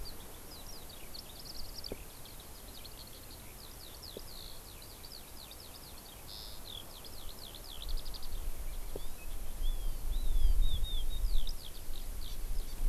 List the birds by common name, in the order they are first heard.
Eurasian Skylark, Hawaii Amakihi